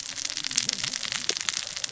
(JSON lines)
{"label": "biophony, cascading saw", "recorder": "SoundTrap 600 or HydroMoth"}